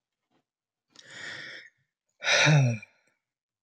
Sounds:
Sigh